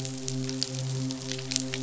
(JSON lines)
{"label": "biophony, midshipman", "recorder": "SoundTrap 500"}